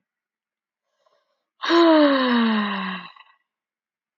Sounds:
Sigh